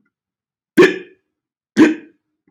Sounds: Sigh